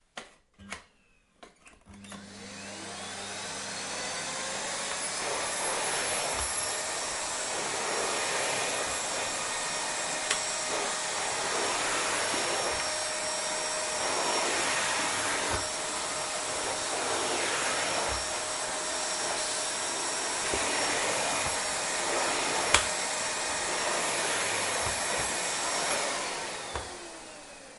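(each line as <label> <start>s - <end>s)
A mechanical button is pressed. 0.1s - 1.0s
A mechanical button is being pressed and released. 0.6s - 0.9s
A vacuum cleaner engine clicks on. 1.4s - 2.1s
A vacuum cleaner engine accelerates from off to full running speed. 2.0s - 5.3s
A vacuum cleaner engine spins at high frequency, creating a whirring noise. 5.2s - 26.7s
The vacuum cleaner is dragged smoothly along the floor. 5.6s - 6.5s
The vacuum cleaner is dragged smoothly along the floor. 7.9s - 8.7s
A vacuum cleaner clicks as it hits an object while vacuuming. 10.2s - 10.4s
The vacuum cleaner is dragged smoothly along the floor. 11.1s - 12.9s
The vacuum cleaner is dragged smoothly along the floor. 14.3s - 15.7s
The vacuum cleaner is dragged smoothly along the floor. 16.9s - 18.1s
The vacuum cleaner is dragged smoothly along the floor. 20.5s - 22.6s
A vacuum cleaner clicks as it hits an object while vacuuming. 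22.7s - 22.9s
The vacuum cleaner is dragged smoothly along the floor. 23.7s - 25.8s
The vacuum cleaner engine whirls and decelerates to a halt. 26.2s - 27.7s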